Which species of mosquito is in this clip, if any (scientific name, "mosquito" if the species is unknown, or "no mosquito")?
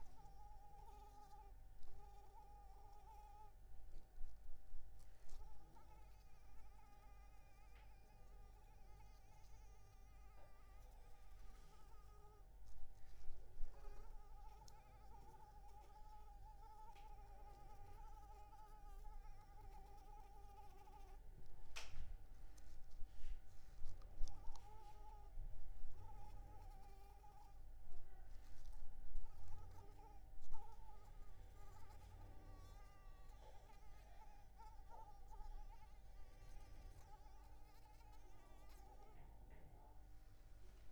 Anopheles arabiensis